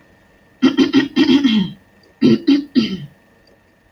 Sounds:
Throat clearing